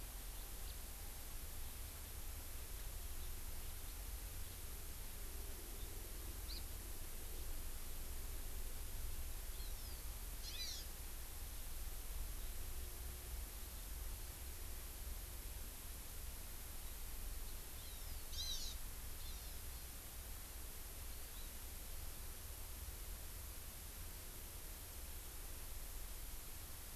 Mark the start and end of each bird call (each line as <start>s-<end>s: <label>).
6.5s-6.7s: Hawaii Amakihi (Chlorodrepanis virens)
9.6s-10.0s: Hawaii Amakihi (Chlorodrepanis virens)
10.4s-10.9s: Hawaii Amakihi (Chlorodrepanis virens)
17.8s-18.8s: Hawaii Amakihi (Chlorodrepanis virens)
19.3s-19.7s: Hawaii Amakihi (Chlorodrepanis virens)
21.2s-21.5s: Hawaii Amakihi (Chlorodrepanis virens)